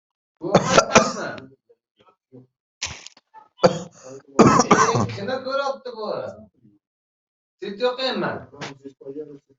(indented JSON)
{
  "expert_labels": [
    {
      "quality": "good",
      "cough_type": "wet",
      "dyspnea": false,
      "wheezing": false,
      "stridor": false,
      "choking": false,
      "congestion": false,
      "nothing": true,
      "diagnosis": "lower respiratory tract infection",
      "severity": "mild"
    }
  ]
}